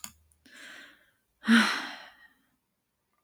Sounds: Sigh